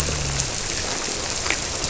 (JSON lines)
{"label": "biophony", "recorder": "SoundTrap 300"}